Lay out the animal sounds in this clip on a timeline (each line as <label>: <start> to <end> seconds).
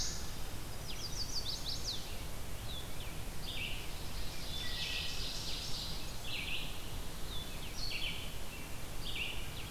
Red-eyed Vireo (Vireo olivaceus): 0.0 to 9.4 seconds
Blue-headed Vireo (Vireo solitarius): 0.5 to 9.7 seconds
Chestnut-sided Warbler (Setophaga pensylvanica): 0.7 to 2.1 seconds
Ovenbird (Seiurus aurocapilla): 3.7 to 6.2 seconds
Wood Thrush (Hylocichla mustelina): 4.4 to 5.2 seconds